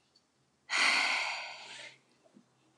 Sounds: Sigh